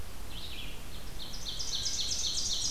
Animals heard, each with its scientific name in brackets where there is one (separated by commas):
Red-eyed Vireo (Vireo olivaceus), Ovenbird (Seiurus aurocapilla)